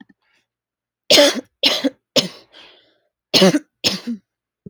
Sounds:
Cough